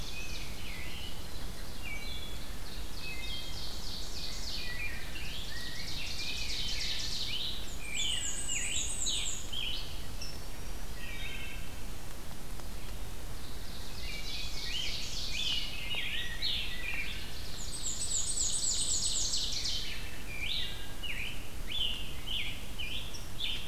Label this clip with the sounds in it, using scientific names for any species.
Seiurus aurocapilla, Pheucticus ludovicianus, Hylocichla mustelina, Piranga olivacea, Mniotilta varia